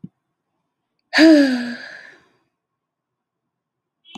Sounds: Sigh